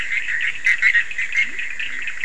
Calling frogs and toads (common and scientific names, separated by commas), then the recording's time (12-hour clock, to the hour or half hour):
Bischoff's tree frog (Boana bischoffi), Leptodactylus latrans, Cochran's lime tree frog (Sphaenorhynchus surdus)
1am